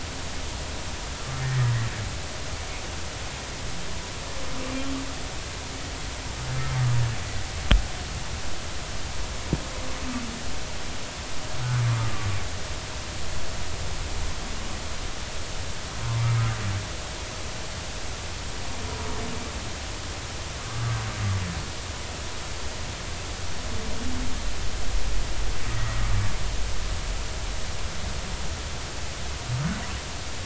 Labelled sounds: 1.4	1.6	humpback whale, 1.8 to 2.0 kHz

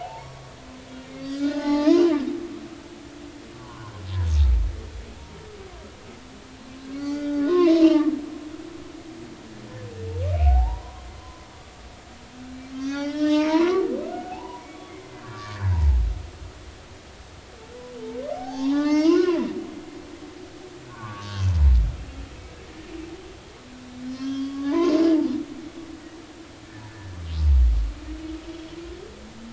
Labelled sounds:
0.0	0.5	humpback whale, 0.80 to 1.2 kHz
1.2	2.2	humpback whale, 0.80 to 5.4 kHz
3.6	3.9	humpback whale, 0.93 to 1.2 kHz
7.0	8.1	humpback whale, 0.93 to 4.8 kHz
10.5	11.5	humpback whale, 0.80 to 1.1 kHz
12.7	16.0	humpback whale, 0.80 to 6.1 kHz
18.3	19.4	humpback whale, 0.80 to 6.1 kHz
20.9	21.5	humpback whale, 0.86 to 1.7 kHz
24.0	25.2	humpback whale, 0.80 to 6.0 kHz
26.9	27.1	humpback whale, 1.7 to 1.8 kHz

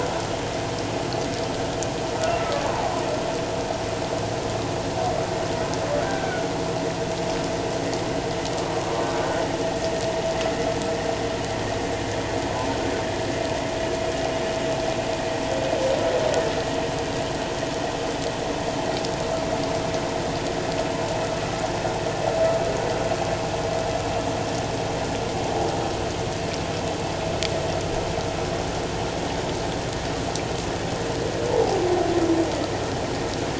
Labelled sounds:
2.5	2.9	humpback whale, 0.78 to 1.2 kHz
6.0	6.5	humpback whale, 1.4 to 1.6 kHz

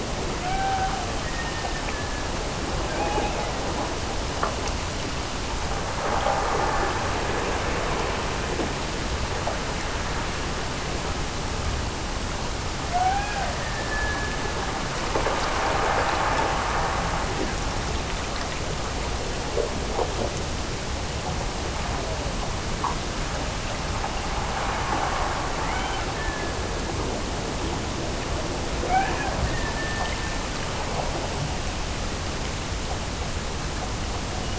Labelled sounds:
0.3	2.4	killer whale, Bigg's (transient), Gulf of Alaska transient, 0.57 to 3.4 kHz
2.8	4.1	killer whale, Bigg's (transient), Gulf of Alaska transient, 1.5 to 3.1 kHz
12.8	14.9	killer whale, Bigg's (transient), Gulf of Alaska transient, 0.53 to 2.5 kHz
25.6	27.1	killer whale, Bigg's (transient), Gulf of Alaska transient, 1.1 to 3.2 kHz
28.7	30.6	killer whale, Bigg's (transient), Gulf of Alaska transient, 0.46 to 3.0 kHz

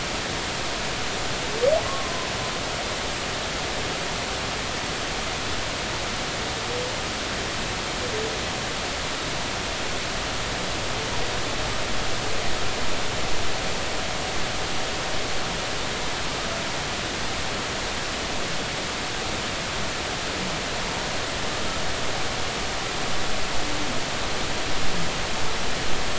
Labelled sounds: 1.8	2.3	humpback whale, 0.99 to 1.2 kHz

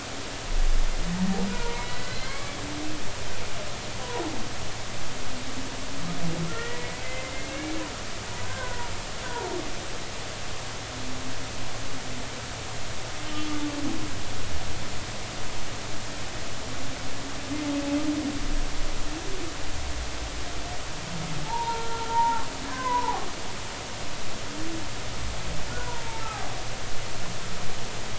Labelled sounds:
1.5	2.6	humpback whale, 0.90 to 3.3 kHz
6.5	7.8	humpback whale, 1.8 to 2.3 kHz
8.4	8.9	humpback whale, 0.90 to 1.6 kHz
9.3	9.6	humpback whale, 0.83 to 1.0 kHz
21.4	23.3	humpback whale, 0.80 to 1.7 kHz
25.7	26.5	humpback whale, 0.80 to 1.6 kHz

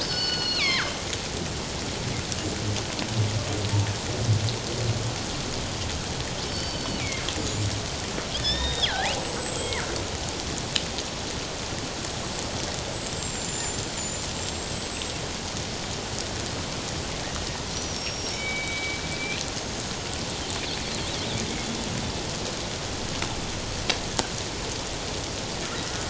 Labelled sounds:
0.0	1.0	killer whale, northern resident, G clan, 0.97 to 5.3 kHz
6.4	7.3	killer whale, northern resident, G clan, 2.0 to 5.4 kHz
8.3	9.8	killer whale, northern resident, G clan, 1.4 to 8.0 kHz
12.7	15.1	killer whale, northern resident, G clan, 6.9 to 8.0 kHz
17.7	20.1	killer whale, northern resident, G clan, 2.1 to 6.6 kHz

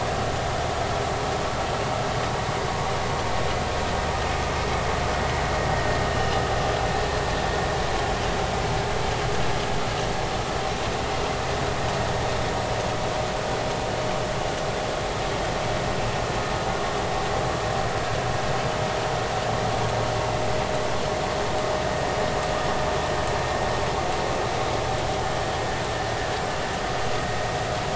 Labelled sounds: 6.1	6.4	vessel noise, 2.8 to 3.0 kHz

